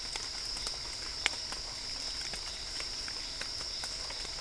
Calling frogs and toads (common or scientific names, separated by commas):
Dendropsophus cruzi